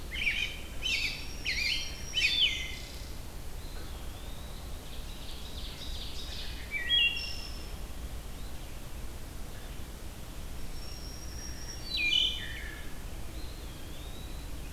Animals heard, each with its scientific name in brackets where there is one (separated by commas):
American Robin (Turdus migratorius), Ovenbird (Seiurus aurocapilla), Black-throated Green Warbler (Setophaga virens), Eastern Wood-Pewee (Contopus virens), Wood Thrush (Hylocichla mustelina)